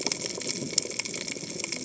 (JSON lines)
{"label": "biophony, cascading saw", "recorder": "HydroMoth"}